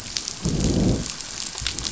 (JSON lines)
{"label": "biophony, growl", "recorder": "SoundTrap 500"}